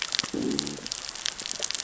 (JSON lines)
{"label": "biophony, growl", "recorder": "SoundTrap 600 or HydroMoth"}